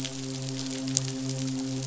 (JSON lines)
{"label": "biophony, midshipman", "recorder": "SoundTrap 500"}